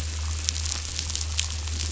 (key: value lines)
label: anthrophony, boat engine
recorder: SoundTrap 500